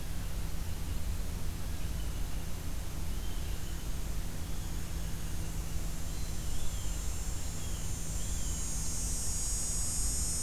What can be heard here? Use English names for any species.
Blue Jay